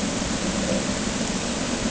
{"label": "anthrophony, boat engine", "recorder": "HydroMoth"}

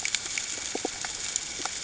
{"label": "ambient", "recorder": "HydroMoth"}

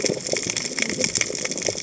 {"label": "biophony, cascading saw", "recorder": "HydroMoth"}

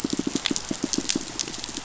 {"label": "biophony, pulse", "recorder": "SoundTrap 500"}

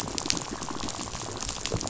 {"label": "biophony, rattle", "recorder": "SoundTrap 500"}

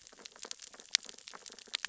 {"label": "biophony, sea urchins (Echinidae)", "recorder": "SoundTrap 600 or HydroMoth"}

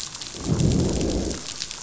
{"label": "biophony, growl", "recorder": "SoundTrap 500"}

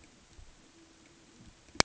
{"label": "ambient", "recorder": "HydroMoth"}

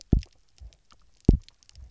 {"label": "biophony, double pulse", "recorder": "SoundTrap 300"}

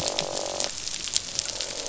{"label": "biophony, croak", "recorder": "SoundTrap 500"}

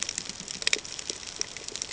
{"label": "ambient", "recorder": "HydroMoth"}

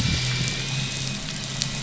{"label": "anthrophony, boat engine", "recorder": "SoundTrap 500"}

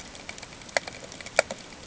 {"label": "ambient", "recorder": "HydroMoth"}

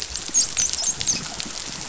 {"label": "biophony, dolphin", "recorder": "SoundTrap 500"}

